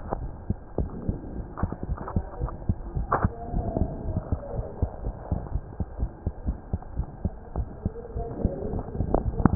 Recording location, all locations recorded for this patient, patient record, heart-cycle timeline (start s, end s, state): mitral valve (MV)
aortic valve (AV)+pulmonary valve (PV)+tricuspid valve (TV)+mitral valve (MV)
#Age: Child
#Sex: Female
#Height: 103.0 cm
#Weight: 14.0 kg
#Pregnancy status: False
#Murmur: Present
#Murmur locations: mitral valve (MV)+pulmonary valve (PV)+tricuspid valve (TV)
#Most audible location: pulmonary valve (PV)
#Systolic murmur timing: Holosystolic
#Systolic murmur shape: Plateau
#Systolic murmur grading: I/VI
#Systolic murmur pitch: Low
#Systolic murmur quality: Blowing
#Diastolic murmur timing: nan
#Diastolic murmur shape: nan
#Diastolic murmur grading: nan
#Diastolic murmur pitch: nan
#Diastolic murmur quality: nan
#Outcome: Abnormal
#Campaign: 2015 screening campaign
0.00	0.18	unannotated
0.18	0.32	S1
0.32	0.46	systole
0.46	0.60	S2
0.60	0.78	diastole
0.78	0.92	S1
0.92	1.06	systole
1.06	1.20	S2
1.20	1.36	diastole
1.36	1.46	S1
1.46	1.56	systole
1.56	1.70	S2
1.70	1.84	diastole
1.84	1.98	S1
1.98	2.12	systole
2.12	2.24	S2
2.24	2.40	diastole
2.40	2.52	S1
2.52	2.66	systole
2.66	2.80	S2
2.80	2.94	diastole
2.94	3.08	S1
3.08	3.22	systole
3.22	3.32	S2
3.32	3.50	diastole
3.50	3.66	S1
3.66	3.76	systole
3.76	3.92	S2
3.92	4.13	diastole
4.13	4.24	S1
4.24	4.30	systole
4.30	4.40	S2
4.40	4.56	diastole
4.56	4.66	S1
4.66	4.80	systole
4.80	4.90	S2
4.90	5.04	diastole
5.04	5.16	S1
5.16	5.28	systole
5.28	5.40	S2
5.40	5.54	diastole
5.54	5.64	S1
5.64	5.78	systole
5.78	5.86	S2
5.86	6.00	diastole
6.00	6.10	S1
6.10	6.22	systole
6.22	6.32	S2
6.32	6.46	diastole
6.46	6.58	S1
6.58	6.72	systole
6.72	6.82	S2
6.82	6.96	diastole
6.96	7.08	S1
7.08	7.24	systole
7.24	7.36	S2
7.36	7.56	diastole
7.56	7.68	S1
7.68	7.84	systole
7.84	7.94	S2
7.94	8.14	diastole
8.14	8.28	S1
8.28	8.42	systole
8.42	8.54	S2
8.54	9.55	unannotated